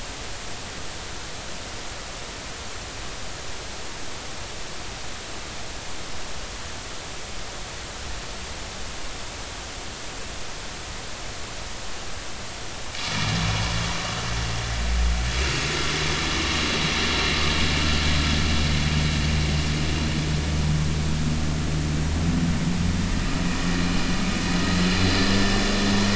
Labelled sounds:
12.9	13.4	vessel noise, 2.1 to 2.5 kHz
23.7	24.0	vessel noise, 4.0 to 4.2 kHz

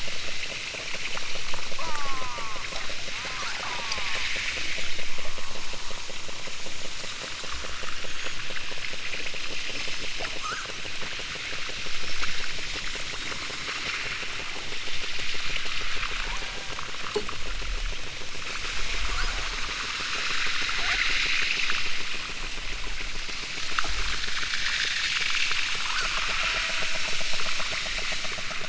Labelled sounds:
1.7	2.7	killer whale, southern Alaska resident, 0.37 to 2.1 kHz
3.1	4.3	killer whale, southern Alaska resident, 0.41 to 2.5 kHz
5.1	6.2	killer whale, southern Alaska resident, 0.64 to 1.7 kHz
10.4	10.8	killer whale, southern Alaska resident, 0.64 to 2.1 kHz
16.2	17.0	killer whale, southern Alaska resident, 0.32 to 2.0 kHz
18.7	19.6	killer whale, southern Alaska resident, 0.37 to 2.1 kHz
20.7	21.0	killer whale, southern Alaska resident, 0.38 to 2.2 kHz
25.8	27.1	killer whale, southern Alaska resident, 0.28 to 2.0 kHz

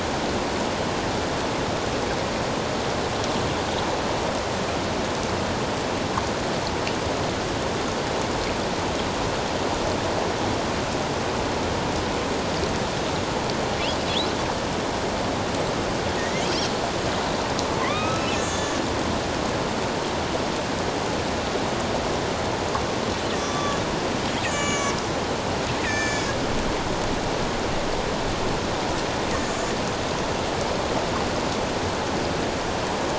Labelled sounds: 14.1	14.4	killer whale, northern resident, A clan, AB subclan, 3.0 to 4.1 kHz
16.2	16.4	killer whale, northern resident, A clan, AB subclan, 1.8 to 2.2 kHz
17.8	18.8	killer whale, northern resident, A clan, AB subclan, 1.0 to 7.6 kHz
23.4	25.0	killer whale, northern resident, A clan, AB subclan, 1.1 to 7.2 kHz
25.8	26.3	killer whale, northern resident, A clan, AB subclan, 1.7 to 7.6 kHz
29.4	29.7	killer whale, northern resident, A clan, AB subclan, 6.3 to 7.1 kHz

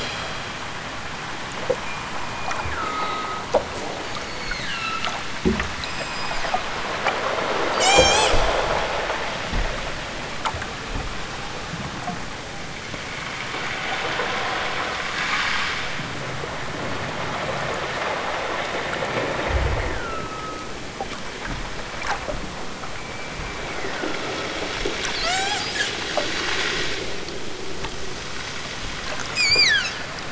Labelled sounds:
2.1	3.5	killer whale, southern Alaska resident, 0.87 to 2.9 kHz
4.0	5.2	killer whale, southern Alaska resident, 0.97 to 8.0 kHz
5.8	6.6	killer whale, southern Alaska resident, 2.1 to 7.9 kHz
7.8	8.4	killer whale, southern Alaska resident, 0.32 to 8.0 kHz
19.4	20.7	killer whale, southern Alaska resident, 0.87 to 4.7 kHz
22.9	24.3	killer whale, southern Alaska resident, 0.92 to 2.7 kHz
25.2	25.7	killer whale, southern Alaska resident, 0.51 to 8.0 kHz
29.3	30.0	killer whale, southern Alaska resident, 1.2 to 8.0 kHz

